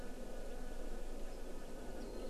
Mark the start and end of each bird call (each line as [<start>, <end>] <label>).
[2.00, 2.30] Warbling White-eye (Zosterops japonicus)